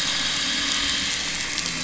{"label": "anthrophony, boat engine", "recorder": "SoundTrap 500"}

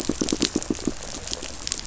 {"label": "biophony, pulse", "recorder": "SoundTrap 500"}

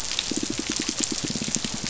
{"label": "biophony, pulse", "recorder": "SoundTrap 500"}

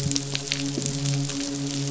{"label": "biophony, midshipman", "recorder": "SoundTrap 500"}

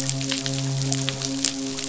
{"label": "biophony, midshipman", "recorder": "SoundTrap 500"}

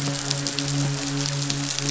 {"label": "biophony, midshipman", "recorder": "SoundTrap 500"}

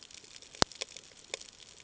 {"label": "ambient", "recorder": "HydroMoth"}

